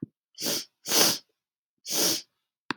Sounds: Sniff